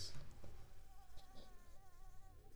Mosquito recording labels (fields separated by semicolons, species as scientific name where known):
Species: Anopheles arabiensis; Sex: female; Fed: unfed; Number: one; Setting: cup